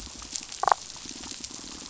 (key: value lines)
label: biophony, damselfish
recorder: SoundTrap 500

label: biophony
recorder: SoundTrap 500